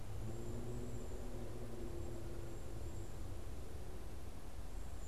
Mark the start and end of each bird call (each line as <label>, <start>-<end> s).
Cedar Waxwing (Bombycilla cedrorum), 0.1-5.1 s